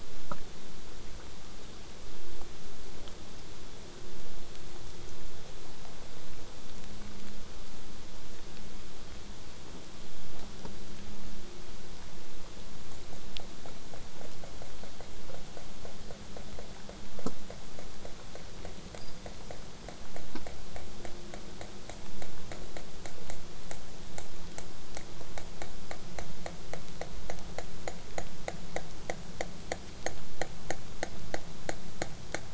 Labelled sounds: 0.0	5.0	vessel noise, 0 to 8.0 kHz
21.0	26.0	killer whale, southern resident, 0 to 8.0 kHz

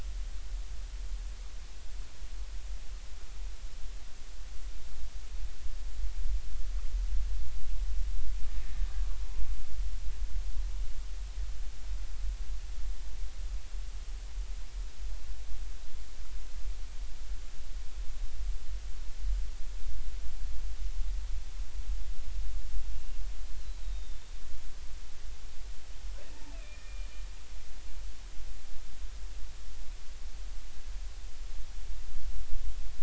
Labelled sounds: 22.9	24.3	killer whale, Bigg's (transient), 2.7 to 4.0 kHz
26.3	27.1	killer whale, Bigg's (transient), 0.80 to 2.7 kHz

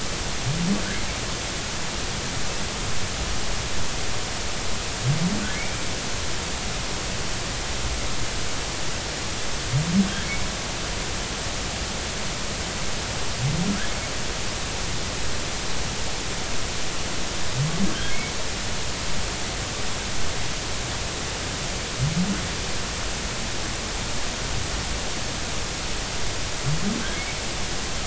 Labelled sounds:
5.5	5.8	humpback whale, 2.0 to 2.4 kHz
18.1	18.4	humpback whale, 2.1 to 2.3 kHz

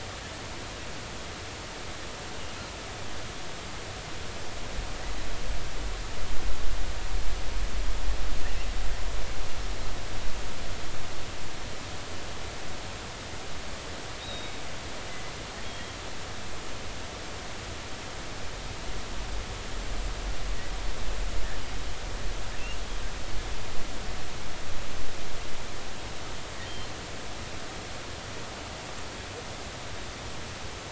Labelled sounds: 14.2	14.5	killer whale, offshore, 3.6 to 3.9 kHz
15.6	15.9	killer whale, offshore, 3.2 to 3.4 kHz

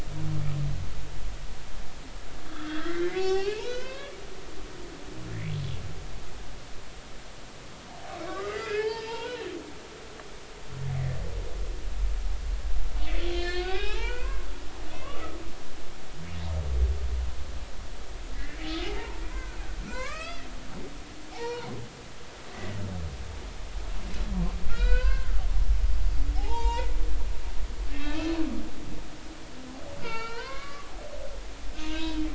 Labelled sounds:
2.4	4.2	humpback whale, 0.80 to 5.8 kHz
8.3	9.4	humpback whale, 0.83 to 5.3 kHz
13.2	14.5	humpback whale, 0.80 to 4.4 kHz
18.8	20.4	humpback whale, 0.80 to 3.5 kHz
21.3	21.7	humpback whale, 0.80 to 4.4 kHz
22.5	22.8	humpback whale, 1.8 to 2.0 kHz
24.7	25.3	humpback whale, 0.96 to 5.0 kHz
26.3	27.0	humpback whale, 0.80 to 7.6 kHz
27.9	28.3	humpback whale, 1.1 to 2.7 kHz
30.0	30.9	humpback whale, 0.83 to 4.6 kHz
31.9	32.2	humpback whale, 2.5 to 2.7 kHz

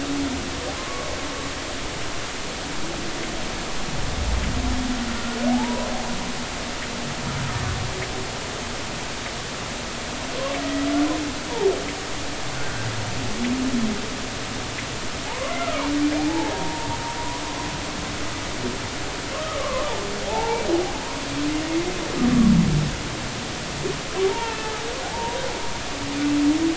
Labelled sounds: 0.8	1.1	humpback whale, 0.99 to 1.2 kHz
5.5	5.9	humpback whale, 0.80 to 1.1 kHz
12.6	12.9	humpback whale, 1.4 to 1.6 kHz
15.3	16.9	humpback whale, 0.80 to 2.2 kHz
17.2	17.4	humpback whale, 0.90 to 1.1 kHz
19.6	20.6	humpback whale, 0.80 to 1.2 kHz
24.4	24.7	humpback whale, 2.6 to 2.8 kHz
25.0	25.6	humpback whale, 0.80 to 0.99 kHz

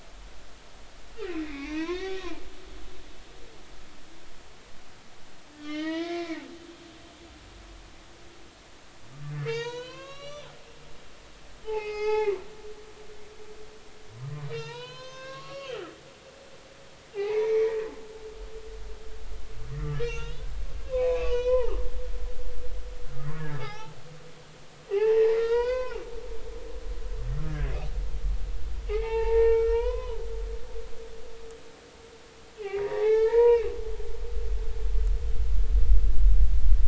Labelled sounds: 1.4	2.2	humpback whale, 0.80 to 4.1 kHz
5.5	6.4	humpback whale, 0.90 to 3.7 kHz
9.4	10.5	humpback whale, 0.86 to 6.9 kHz
11.6	12.3	humpback whale, 0.80 to 5.3 kHz
14.5	15.8	humpback whale, 0.86 to 6.5 kHz
17.1	17.8	humpback whale, 0.80 to 2.6 kHz
19.8	20.4	humpback whale, 0.86 to 4.0 kHz
20.9	21.8	humpback whale, 0.80 to 3.6 kHz
23.6	23.9	humpback whale, 0.80 to 4.0 kHz
24.9	26.0	humpback whale, 0.80 to 5.7 kHz
27.5	27.7	humpback whale, 1.5 to 1.8 kHz
28.9	30.2	humpback whale, 0.80 to 3.6 kHz
32.8	33.7	humpback whale, 0.80 to 4.1 kHz

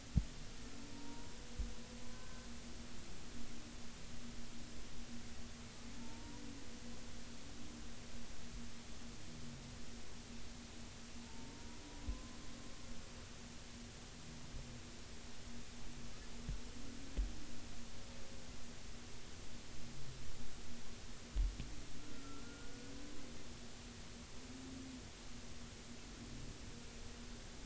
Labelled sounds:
0.9	1.3	humpback whale, 0.90 to 0.99 kHz
2.1	2.5	humpback whale, 1.5 to 1.6 kHz
6.0	6.4	humpback whale, 0.86 to 1.0 kHz
11.2	12.4	humpback whale, 0.86 to 1.1 kHz
22.0	22.9	humpback whale, 1.3 to 1.5 kHz

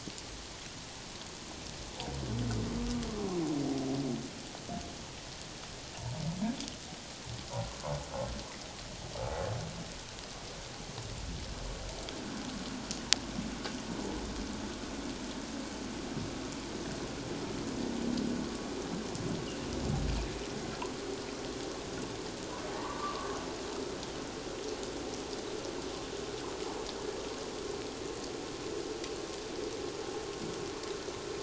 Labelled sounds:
22.7	23.3	humpback whale, 0.78 to 1.2 kHz

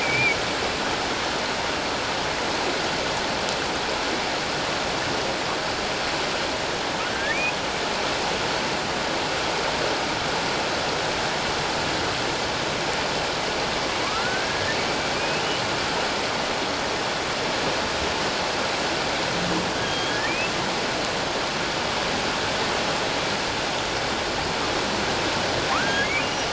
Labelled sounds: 0.0	0.4	humpback whale, 2.2 to 2.5 kHz
7.1	7.4	humpback whale, 1.4 to 2.0 kHz
14.0	14.6	humpback whale, 0.97 to 1.7 kHz
15.2	15.4	humpback whale, 2.3 to 2.7 kHz
19.8	20.5	humpback whale, 2.2 to 3.4 kHz
25.7	26.1	humpback whale, 0.91 to 1.8 kHz

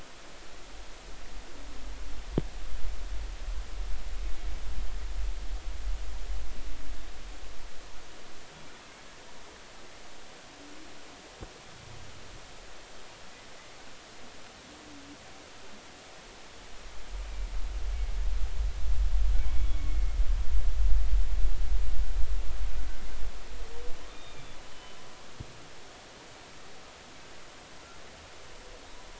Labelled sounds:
19.7	20.2	humpback whale, 2.1 to 2.3 kHz
24.1	25.0	humpback whale, 2.3 to 3.7 kHz

